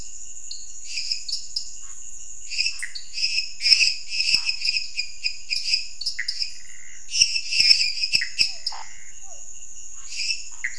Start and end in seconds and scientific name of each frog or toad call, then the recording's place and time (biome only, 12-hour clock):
0.0	8.9	Dendropsophus minutus
0.0	10.7	Dendropsophus nanus
1.8	4.6	Scinax fuscovarius
8.4	9.5	Physalaemus cuvieri
8.7	8.9	Scinax fuscovarius
10.1	10.6	Dendropsophus minutus
Cerrado, 10:30pm